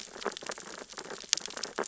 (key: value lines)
label: biophony, sea urchins (Echinidae)
recorder: SoundTrap 600 or HydroMoth